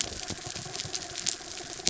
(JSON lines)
{"label": "anthrophony, mechanical", "recorder": "SoundTrap 300"}